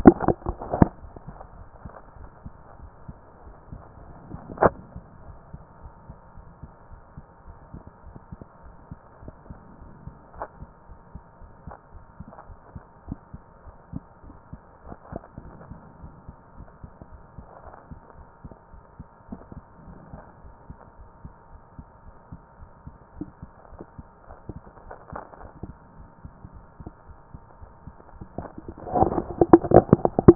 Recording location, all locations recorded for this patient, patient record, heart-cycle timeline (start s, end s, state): aortic valve (AV)
aortic valve (AV)+pulmonary valve (PV)+tricuspid valve (TV)
#Age: Child
#Sex: Female
#Height: 141.0 cm
#Weight: 45.2 kg
#Pregnancy status: False
#Murmur: Absent
#Murmur locations: nan
#Most audible location: nan
#Systolic murmur timing: nan
#Systolic murmur shape: nan
#Systolic murmur grading: nan
#Systolic murmur pitch: nan
#Systolic murmur quality: nan
#Diastolic murmur timing: nan
#Diastolic murmur shape: nan
#Diastolic murmur grading: nan
#Diastolic murmur pitch: nan
#Diastolic murmur quality: nan
#Outcome: Abnormal
#Campaign: 2014 screening campaign
0.00	1.02	unannotated
1.02	1.14	S1
1.14	1.28	systole
1.28	1.38	S2
1.38	1.58	diastole
1.58	1.68	S1
1.68	1.84	systole
1.84	1.94	S2
1.94	2.20	diastole
2.20	2.32	S1
2.32	2.44	systole
2.44	2.54	S2
2.54	2.82	diastole
2.82	2.92	S1
2.92	3.08	systole
3.08	3.18	S2
3.18	3.44	diastole
3.44	3.56	S1
3.56	3.70	systole
3.70	3.82	S2
3.82	4.06	diastole
4.06	4.18	S1
4.18	4.28	systole
4.28	4.40	S2
4.40	4.60	diastole
4.60	4.78	S1
4.78	4.94	systole
4.94	5.04	S2
5.04	5.28	diastole
5.28	5.38	S1
5.38	5.52	systole
5.52	5.62	S2
5.62	5.84	diastole
5.84	5.94	S1
5.94	6.08	systole
6.08	6.18	S2
6.18	6.44	diastole
6.44	6.54	S1
6.54	6.62	systole
6.62	6.70	S2
6.70	6.92	diastole
6.92	7.02	S1
7.02	7.16	systole
7.16	7.24	S2
7.24	7.48	diastole
7.48	7.58	S1
7.58	7.72	systole
7.72	7.82	S2
7.82	8.06	diastole
8.06	8.18	S1
8.18	8.32	systole
8.32	8.42	S2
8.42	8.64	diastole
8.64	8.74	S1
8.74	8.86	systole
8.86	8.96	S2
8.96	9.22	diastole
9.22	9.34	S1
9.34	9.50	systole
9.50	9.60	S2
9.60	9.82	diastole
9.82	9.94	S1
9.94	10.06	systole
10.06	10.16	S2
10.16	10.38	diastole
10.38	10.48	S1
10.48	10.60	systole
10.60	10.68	S2
10.68	10.90	diastole
10.90	11.00	S1
11.00	11.14	systole
11.14	11.22	S2
11.22	11.44	diastole
11.44	11.54	S1
11.54	11.66	systole
11.66	11.74	S2
11.74	11.96	diastole
11.96	12.04	S1
12.04	12.16	systole
12.16	12.26	S2
12.26	12.48	diastole
12.48	12.58	S1
12.58	12.72	systole
12.72	12.82	S2
12.82	13.08	diastole
13.08	13.18	S1
13.18	13.30	systole
13.30	13.40	S2
13.40	13.66	diastole
13.66	13.78	S1
13.78	13.94	systole
13.94	14.04	S2
14.04	14.28	diastole
14.28	14.38	S1
14.38	14.52	systole
14.52	14.60	S2
14.60	14.86	diastole
14.86	14.96	S1
14.96	15.12	systole
15.12	15.22	S2
15.22	15.44	diastole
15.44	15.58	S1
15.58	15.70	systole
15.70	15.80	S2
15.80	16.02	diastole
16.02	16.14	S1
16.14	16.28	systole
16.28	16.34	S2
16.34	16.58	diastole
16.58	16.68	S1
16.68	16.82	systole
16.82	16.90	S2
16.90	17.14	diastole
17.14	17.24	S1
17.24	17.38	systole
17.38	17.46	S2
17.46	17.68	diastole
17.68	17.78	S1
17.78	17.90	systole
17.90	17.98	S2
17.98	18.20	diastole
18.20	18.30	S1
18.30	18.44	systole
18.44	18.52	S2
18.52	18.74	diastole
18.74	18.82	S1
18.82	18.96	systole
18.96	19.06	S2
19.06	19.32	diastole
19.32	19.44	S1
19.44	19.56	systole
19.56	19.64	S2
19.64	19.86	diastole
19.86	19.98	S1
19.98	20.10	systole
20.10	20.20	S2
20.20	20.44	diastole
20.44	20.54	S1
20.54	20.66	systole
20.66	20.76	S2
20.76	21.00	diastole
21.00	21.10	S1
21.10	21.24	systole
21.24	21.32	S2
21.32	21.54	diastole
21.54	21.64	S1
21.64	21.78	systole
21.78	21.86	S2
21.86	22.08	diastole
22.08	22.18	S1
22.18	22.32	systole
22.32	22.40	S2
22.40	22.62	diastole
22.62	22.72	S1
22.72	22.86	systole
22.86	22.94	S2
22.94	23.18	diastole
23.18	23.30	S1
23.30	23.42	systole
23.42	23.50	S2
23.50	23.72	diastole
23.72	23.82	S1
23.82	23.98	systole
23.98	24.06	S2
24.06	24.30	diastole
24.30	24.38	S1
24.38	24.50	systole
24.50	24.62	S2
24.62	24.86	diastole
24.86	24.96	S1
24.96	25.10	systole
25.10	25.20	S2
25.20	25.42	diastole
25.42	25.52	S1
25.52	25.64	systole
25.64	25.76	S2
25.76	26.00	diastole
26.00	26.10	S1
26.10	26.24	systole
26.24	26.32	S2
26.32	26.54	diastole
26.54	26.64	S1
26.64	26.80	systole
26.80	26.88	S2
26.88	27.10	diastole
27.10	27.20	S1
27.20	27.34	systole
27.34	27.42	S2
27.42	27.64	diastole
27.64	27.78	S1
27.78	27.96	systole
27.96	28.08	S2
28.08	30.35	unannotated